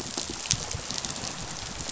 {"label": "biophony, rattle response", "recorder": "SoundTrap 500"}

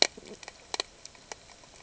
{"label": "ambient", "recorder": "HydroMoth"}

